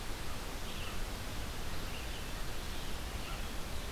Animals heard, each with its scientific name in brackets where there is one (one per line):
Red-eyed Vireo (Vireo olivaceus)